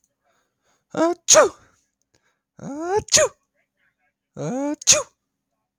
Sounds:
Sneeze